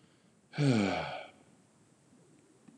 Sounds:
Sigh